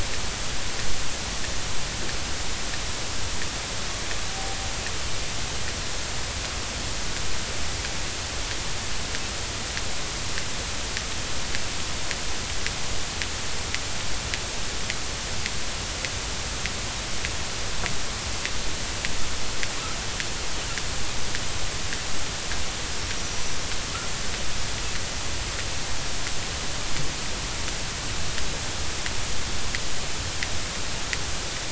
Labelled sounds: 23.1	23.6	killer whale, northern resident, A clan, 5.7 to 6.0 kHz

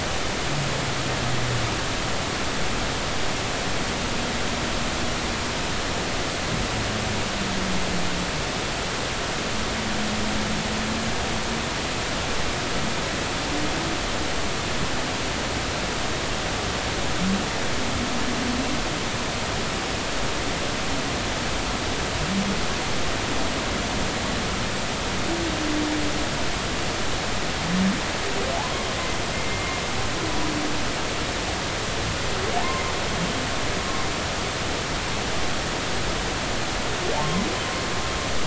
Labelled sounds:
28.6	28.9	humpback whale, 0.80 to 1.1 kHz
30.3	30.8	humpback whale, 2.1 to 2.2 kHz
32.6	32.8	humpback whale, 0.80 to 1.1 kHz

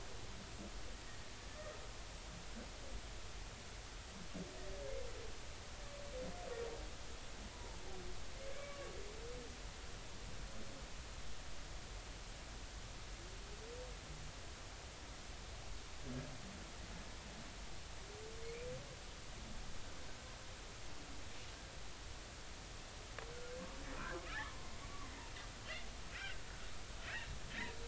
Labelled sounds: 7.5	7.8	humpback whale, 0.86 to 1.0 kHz
8.5	8.9	humpback whale, 1.1 to 2.3 kHz
24.3	24.6	humpback whale, 0.96 to 2.0 kHz
26.1	26.4	humpback whale, 1.3 to 1.6 kHz
27.0	27.3	humpback whale, 2.5 to 2.9 kHz

